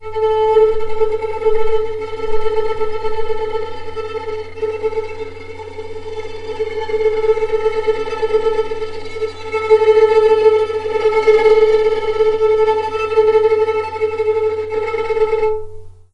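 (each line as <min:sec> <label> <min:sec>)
0:00.0 A violin plays with a quivering tremolo. 0:16.1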